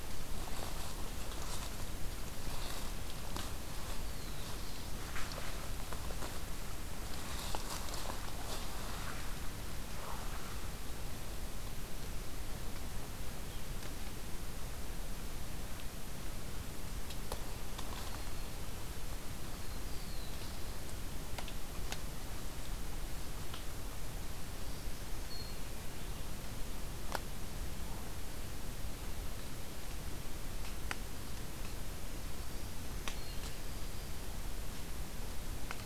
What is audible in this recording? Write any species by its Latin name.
Setophaga caerulescens, Setophaga virens